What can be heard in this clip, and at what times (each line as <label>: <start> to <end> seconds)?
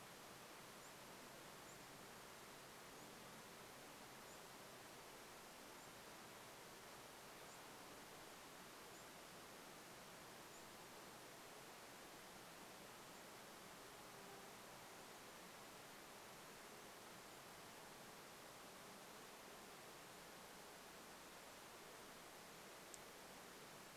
unidentified bird chip note: 0 to 14 seconds
insect buzz: 14 to 16 seconds